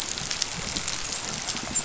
{"label": "biophony, dolphin", "recorder": "SoundTrap 500"}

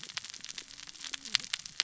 {"label": "biophony, cascading saw", "recorder": "SoundTrap 600 or HydroMoth"}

